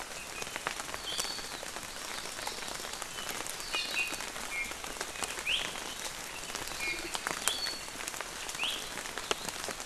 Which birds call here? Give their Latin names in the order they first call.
Chlorodrepanis virens, Drepanis coccinea